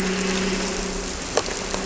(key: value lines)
label: anthrophony, boat engine
recorder: SoundTrap 300